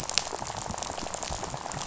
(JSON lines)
{"label": "biophony, rattle", "recorder": "SoundTrap 500"}